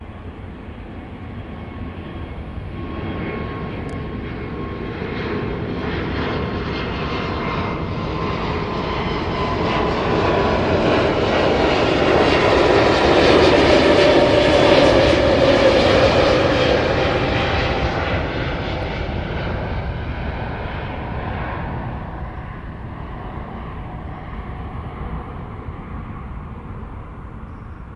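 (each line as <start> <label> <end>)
0.0 An airplane is passing by. 28.0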